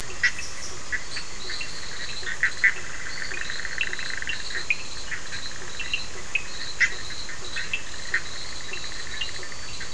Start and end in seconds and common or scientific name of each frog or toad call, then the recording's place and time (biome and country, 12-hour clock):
0.0	9.9	Bischoff's tree frog
0.0	9.9	Cochran's lime tree frog
0.7	9.9	Physalaemus cuvieri
1.0	9.9	fine-lined tree frog
8.1	9.9	two-colored oval frog
Atlantic Forest, Brazil, 10:30pm